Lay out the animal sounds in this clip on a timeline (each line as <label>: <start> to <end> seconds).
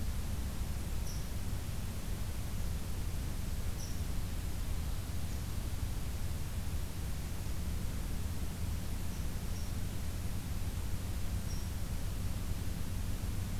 Red Squirrel (Tamiasciurus hudsonicus): 0.0 to 3.9 seconds
Red Squirrel (Tamiasciurus hudsonicus): 9.1 to 11.7 seconds